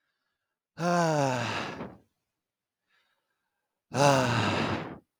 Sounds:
Sigh